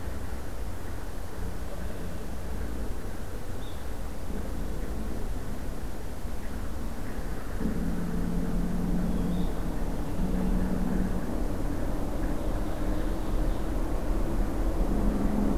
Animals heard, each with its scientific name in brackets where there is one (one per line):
Blue-headed Vireo (Vireo solitarius)
Ovenbird (Seiurus aurocapilla)
Blue Jay (Cyanocitta cristata)